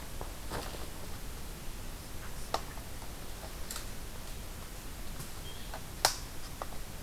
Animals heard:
forest ambience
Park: Katahdin Woods and Waters National Monument